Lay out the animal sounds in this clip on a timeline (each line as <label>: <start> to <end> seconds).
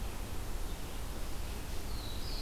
Black-throated Blue Warbler (Setophaga caerulescens): 1.8 to 2.4 seconds